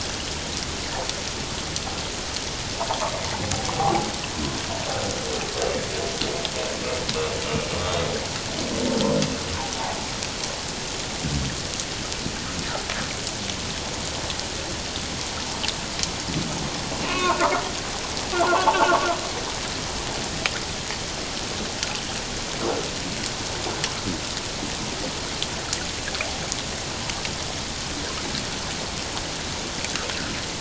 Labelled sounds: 3.7	4.1	humpback whale, 0.78 to 0.91 kHz
17.0	17.5	humpback whale, 0.88 to 2.6 kHz
18.3	18.7	humpback whale, 0.84 to 1.5 kHz

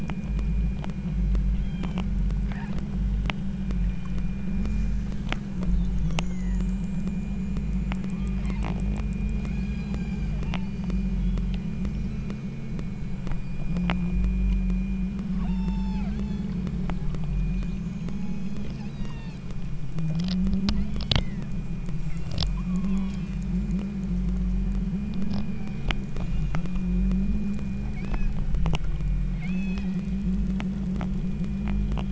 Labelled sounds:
1.5	2.2	killer whale, southern Alaska resident, 1.9 to 7.3 kHz
2.5	2.9	killer whale, southern Alaska resident, 0.50 to 5.1 kHz
6.1	6.8	killer whale, southern Alaska resident, 0.75 to 2.3 kHz
8.1	8.6	killer whale, southern Alaska resident, 0.87 to 2.4 kHz
9.4	11.9	killer whale, southern Alaska resident, 0.48 to 8.0 kHz
15.3	16.6	killer whale, southern Alaska resident, 0.59 to 7.6 kHz
19.0	19.5	killer whale, southern Alaska resident, 0.71 to 8.0 kHz
21.1	21.6	killer whale, southern Alaska resident, 1.4 to 2.3 kHz
22.0	23.5	killer whale, southern Alaska resident, 0.64 to 8.0 kHz
25.5	26.8	killer whale, southern Alaska resident, 0.59 to 5.2 kHz
27.9	28.6	killer whale, southern Alaska resident, 1.3 to 6.2 kHz
29.4	29.9	killer whale, southern Alaska resident, 2.0 to 8.0 kHz

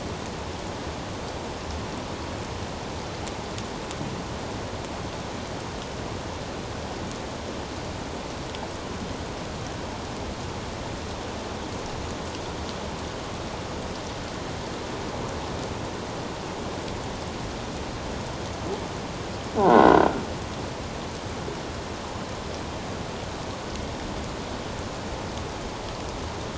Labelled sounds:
19.6	20.1	croaking sound likely from a nearby submerged object, 1.3 to 2.1 kHz

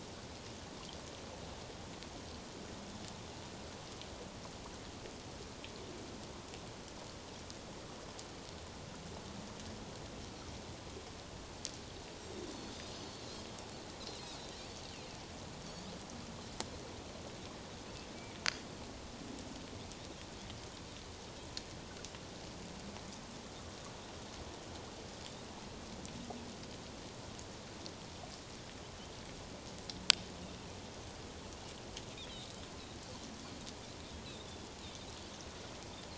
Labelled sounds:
12.9	13.2	Pacific white-sided dolphin, 4.4 to 4.5 kHz
14.4	14.9	Pacific white-sided dolphin, 3.8 to 4.7 kHz
15.6	15.9	Pacific white-sided dolphin, 4.4 to 5.1 kHz

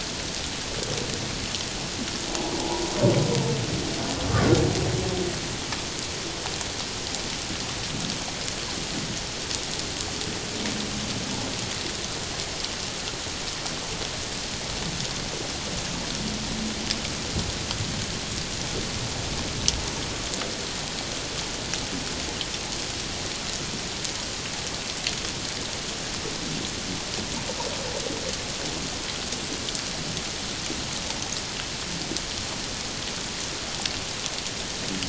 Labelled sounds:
2.4	2.9	humpback whale, 0.78 to 1.0 kHz

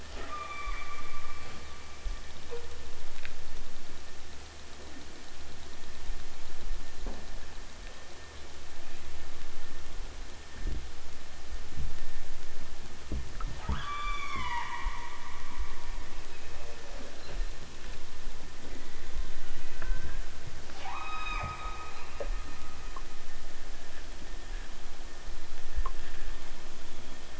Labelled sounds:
0.1	1.8	killer whale, southern Alaska resident, 0.83 to 4.2 kHz
13.6	15.0	killer whale, southern Alaska resident, 0.41 to 8.0 kHz
19.7	20.2	killer whale, southern Alaska resident, 0.46 to 3.0 kHz
20.8	22.1	killer whale, southern Alaska resident, 0.37 to 8.0 kHz

